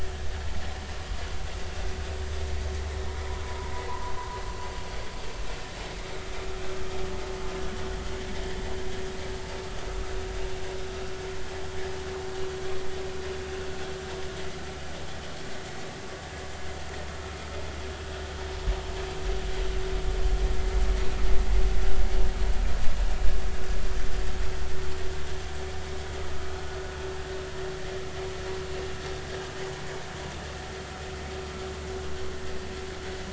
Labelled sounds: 3.4	4.4	vessel noise, 0.90 to 1.1 kHz

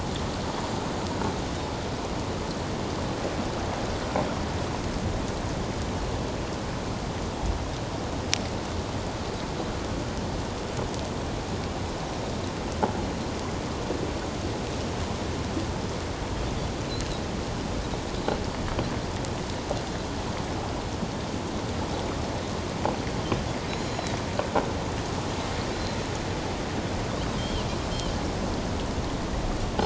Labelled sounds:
23.7	24.2	Pacific white-sided dolphin, 3.8 to 6.9 kHz
25.7	26.0	Pacific white-sided dolphin, 3.9 to 4.2 kHz
27.4	27.6	Pacific white-sided dolphin, 2.9 to 3.3 kHz

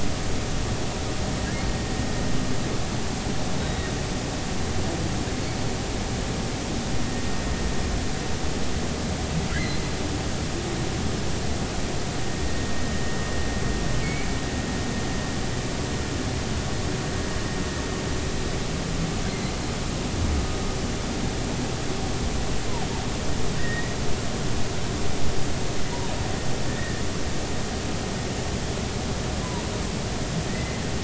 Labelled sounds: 3.6	3.9	humpback whale, 1.8 to 3.9 kHz
9.5	9.8	humpback whale, 1.3 to 4.3 kHz
14.0	14.3	humpback whale, 2.1 to 2.5 kHz
23.6	23.9	humpback whale, 1.8 to 2.0 kHz
26.7	27.0	humpback whale, 1.7 to 2.0 kHz
30.5	30.8	humpback whale, 1.9 to 2.1 kHz

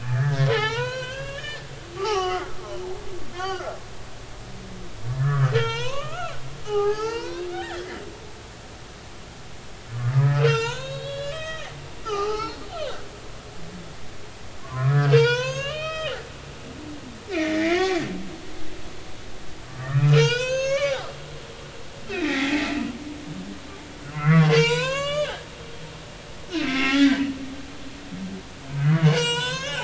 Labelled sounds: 0.0	1.6	humpback whale, 0.80 to 5.0 kHz
2.0	2.6	humpback whale, 0.80 to 5.9 kHz
3.3	3.8	humpback whale, 1.0 to 5.1 kHz
5.1	6.3	humpback whale, 0.83 to 6.5 kHz
6.6	7.9	humpback whale, 0.80 to 5.9 kHz
10.1	11.8	humpback whale, 0.86 to 7.2 kHz
12.0	13.0	humpback whale, 0.80 to 5.4 kHz
14.6	16.2	humpback whale, 0.86 to 6.8 kHz
17.7	19.0	humpback whale, 1.6 to 6.6 kHz
19.8	21.0	humpback whale, 0.86 to 7.0 kHz
22.0	22.7	humpback whale, 0.80 to 2.8 kHz
24.0	25.4	humpback whale, 0.86 to 8.0 kHz
26.5	27.3	humpback whale, 0.80 to 2.4 kHz
28.8	29.8	humpback whale, 0.83 to 7.9 kHz

